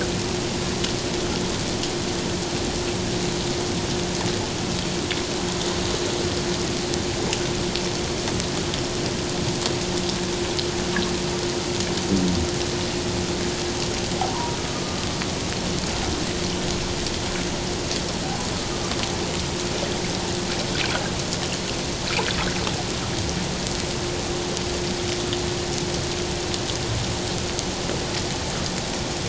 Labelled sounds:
14.3	15.0	humpback whale, 0.91 to 1.2 kHz

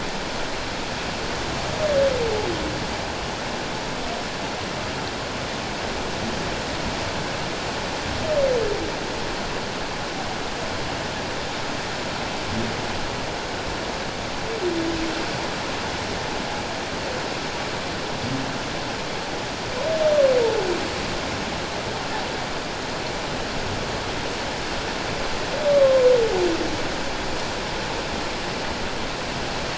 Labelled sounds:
25.7	26.0	humpback whale, 1.0 to 1.2 kHz

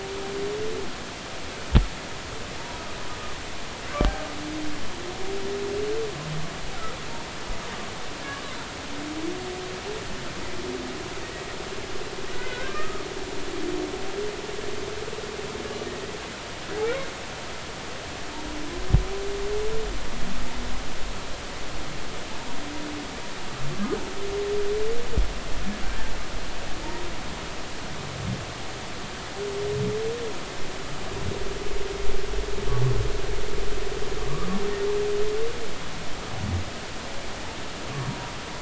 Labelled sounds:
12.3	13.1	humpback whale, 1.0 to 1.7 kHz

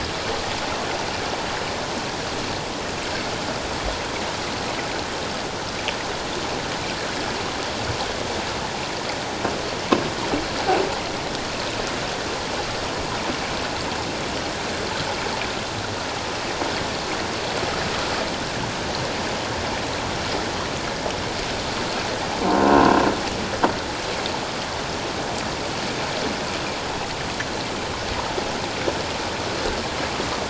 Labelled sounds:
22.4	22.7	croaking sound likely from a nearby submerged object, 0.88 to 1.1 kHz

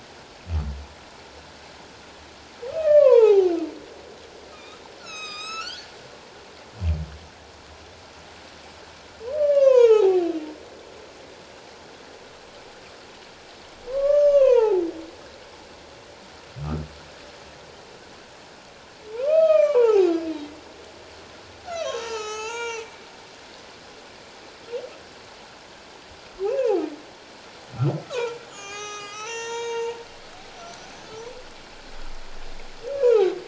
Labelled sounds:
2.7	3.5	humpback whale, 0.78 to 2.9 kHz
4.5	5.9	humpback whale, 1.2 to 8.0 kHz
9.4	10.3	humpback whale, 0.78 to 6.9 kHz
13.9	14.8	humpback whale, 0.78 to 6.5 kHz
19.1	20.1	humpback whale, 0.78 to 5.4 kHz
21.7	22.9	humpback whale, 0.78 to 8.0 kHz
26.4	26.8	humpback whale, 0.78 to 2.8 kHz
28.1	30.0	humpback whale, 0.78 to 8.0 kHz
30.9	31.2	humpback whale, 5.9 to 6.6 kHz
33.0	33.3	humpback whale, 0.78 to 1.0 kHz

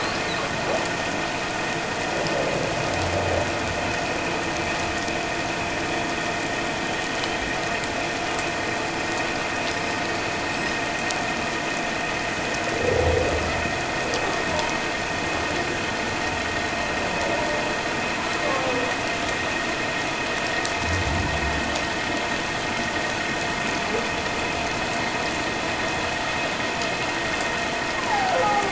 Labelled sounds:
9.7	10.8	humpback whale, 5.0 to 5.2 kHz
28.0	28.4	humpback whale, 0.78 to 1.1 kHz

